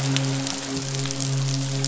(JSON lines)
{"label": "biophony, midshipman", "recorder": "SoundTrap 500"}